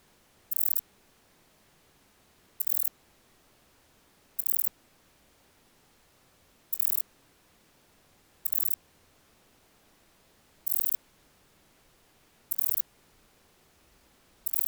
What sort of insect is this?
orthopteran